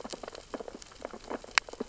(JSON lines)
{"label": "biophony, sea urchins (Echinidae)", "recorder": "SoundTrap 600 or HydroMoth"}